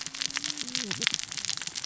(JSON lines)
{"label": "biophony, cascading saw", "recorder": "SoundTrap 600 or HydroMoth"}